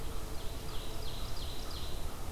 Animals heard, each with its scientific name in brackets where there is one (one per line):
Ovenbird (Seiurus aurocapilla)